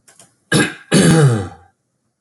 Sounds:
Throat clearing